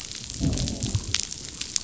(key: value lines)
label: biophony, growl
recorder: SoundTrap 500